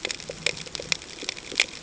{"label": "ambient", "recorder": "HydroMoth"}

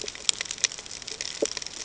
{"label": "ambient", "recorder": "HydroMoth"}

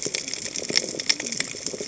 {"label": "biophony, cascading saw", "recorder": "HydroMoth"}
{"label": "biophony", "recorder": "HydroMoth"}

